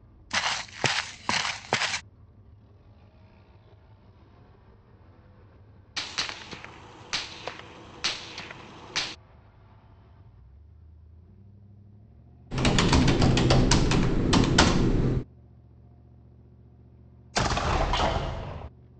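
At 0.3 seconds, someone walks. Then, at 5.96 seconds, gunfire can be heard. After that, at 12.5 seconds, typing is audible. Following that, at 17.33 seconds, an explosion is heard. A soft, steady noise lies in the background.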